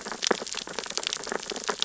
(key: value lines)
label: biophony, sea urchins (Echinidae)
recorder: SoundTrap 600 or HydroMoth